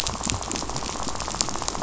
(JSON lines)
{"label": "biophony, rattle", "recorder": "SoundTrap 500"}